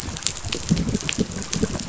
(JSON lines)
{"label": "biophony", "recorder": "SoundTrap 500"}